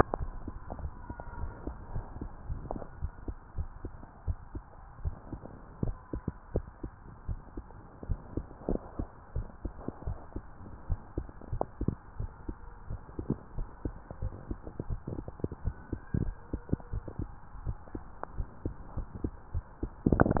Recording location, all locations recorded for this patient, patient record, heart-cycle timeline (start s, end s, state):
tricuspid valve (TV)
aortic valve (AV)+pulmonary valve (PV)+tricuspid valve (TV)+mitral valve (MV)
#Age: Child
#Sex: Male
#Height: 139.0 cm
#Weight: 44.4 kg
#Pregnancy status: False
#Murmur: Absent
#Murmur locations: nan
#Most audible location: nan
#Systolic murmur timing: nan
#Systolic murmur shape: nan
#Systolic murmur grading: nan
#Systolic murmur pitch: nan
#Systolic murmur quality: nan
#Diastolic murmur timing: nan
#Diastolic murmur shape: nan
#Diastolic murmur grading: nan
#Diastolic murmur pitch: nan
#Diastolic murmur quality: nan
#Outcome: Normal
#Campaign: 2015 screening campaign
0.00	0.82	unannotated
0.82	0.92	S1
0.92	1.08	systole
1.08	1.16	S2
1.16	1.40	diastole
1.40	1.52	S1
1.52	1.66	systole
1.66	1.76	S2
1.76	1.94	diastole
1.94	2.06	S1
2.06	2.22	systole
2.22	2.30	S2
2.30	2.48	diastole
2.48	2.60	S1
2.60	2.74	systole
2.74	2.82	S2
2.82	3.04	diastole
3.04	3.12	S1
3.12	3.28	systole
3.28	3.36	S2
3.36	3.56	diastole
3.56	3.68	S1
3.68	3.84	systole
3.84	3.92	S2
3.92	4.28	diastole
4.28	4.38	S1
4.38	4.56	systole
4.56	4.64	S2
4.64	5.02	diastole
5.02	5.16	S1
5.16	5.31	systole
5.31	5.42	S2
5.42	5.82	diastole
5.82	5.96	S1
5.96	6.12	systole
6.12	6.24	S2
6.24	6.54	diastole
6.54	6.66	S1
6.66	6.81	systole
6.81	6.90	S2
6.90	7.28	diastole
7.28	7.40	S1
7.40	7.56	systole
7.56	7.66	S2
7.66	8.08	diastole
8.08	8.20	S1
8.20	8.36	systole
8.36	8.48	S2
8.48	8.68	diastole
8.68	8.80	S1
8.80	8.98	systole
8.98	9.08	S2
9.08	9.34	diastole
9.34	9.48	S1
9.48	9.63	systole
9.63	9.74	S2
9.74	10.06	diastole
10.06	10.18	S1
10.18	10.34	systole
10.34	10.46	S2
10.46	10.88	diastole
10.88	11.00	S1
11.00	11.16	systole
11.16	11.28	S2
11.28	11.52	diastole
11.52	11.64	S1
11.64	11.80	systole
11.80	11.94	S2
11.94	12.18	diastole
12.18	12.30	S1
12.30	12.48	systole
12.48	12.56	S2
12.56	12.90	diastole
12.90	13.00	S1
13.00	13.17	systole
13.17	13.27	S2
13.27	13.56	diastole
13.56	13.68	S1
13.68	13.83	systole
13.83	13.94	S2
13.94	14.22	diastole
14.22	14.34	S1
14.34	14.49	systole
14.49	14.58	S2
14.58	14.90	diastole
14.90	15.00	S1
15.00	15.16	systole
15.16	15.24	S2
15.24	15.64	diastole
15.64	15.76	S1
15.76	15.92	systole
15.92	16.00	S2
16.00	16.20	diastole
16.20	16.32	S1
16.32	16.53	systole
16.53	16.62	S2
16.62	20.40	unannotated